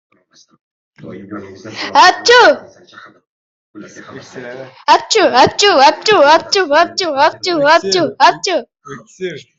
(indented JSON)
{
  "expert_labels": [
    {
      "quality": "no cough present",
      "cough_type": "unknown",
      "dyspnea": false,
      "wheezing": false,
      "stridor": false,
      "choking": false,
      "congestion": false,
      "nothing": true,
      "diagnosis": "healthy cough",
      "severity": "pseudocough/healthy cough"
    }
  ],
  "gender": "female",
  "respiratory_condition": false,
  "fever_muscle_pain": false,
  "status": "healthy"
}